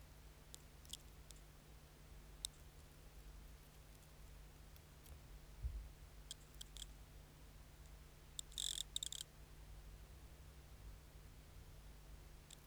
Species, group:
Nemobius sylvestris, Orthoptera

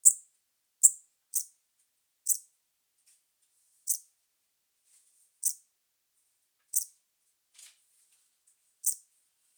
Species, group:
Eupholidoptera megastyla, Orthoptera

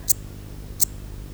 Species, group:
Eupholidoptera megastyla, Orthoptera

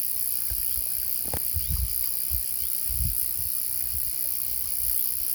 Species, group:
Gampsocleis glabra, Orthoptera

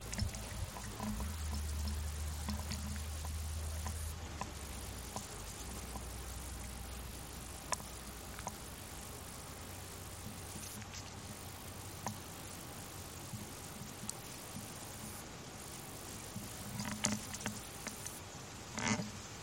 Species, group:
Tettigettalna josei, Cicadidae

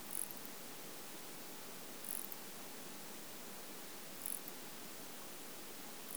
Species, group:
Barbitistes ocskayi, Orthoptera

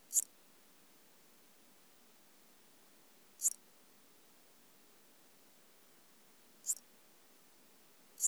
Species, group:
Psorodonotus macedonicus, Orthoptera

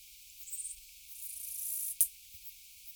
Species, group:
Acrometopa macropoda, Orthoptera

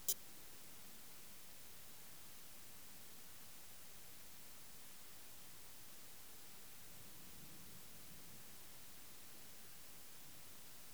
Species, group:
Odontura aspericauda, Orthoptera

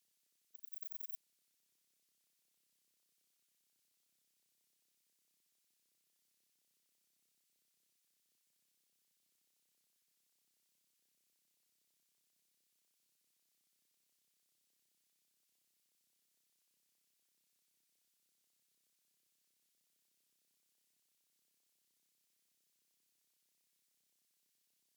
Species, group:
Antaxius chopardi, Orthoptera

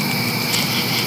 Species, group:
Pterophylla camellifolia, Orthoptera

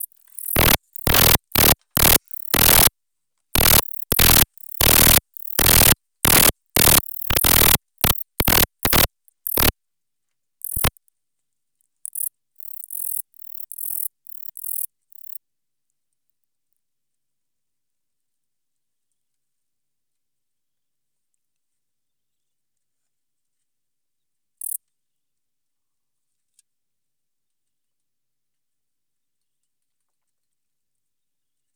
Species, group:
Eugaster guyoni, Orthoptera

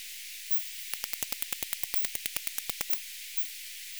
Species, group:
Poecilimon ebneri, Orthoptera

